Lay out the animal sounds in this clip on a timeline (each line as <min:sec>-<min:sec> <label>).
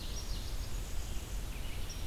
0:00.0-0:00.7 Winter Wren (Troglodytes hiemalis)
0:00.0-0:01.5 Blackburnian Warbler (Setophaga fusca)
0:00.0-0:02.1 Red-eyed Vireo (Vireo olivaceus)